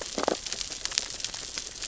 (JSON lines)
{"label": "biophony, sea urchins (Echinidae)", "recorder": "SoundTrap 600 or HydroMoth"}